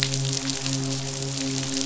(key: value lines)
label: biophony, midshipman
recorder: SoundTrap 500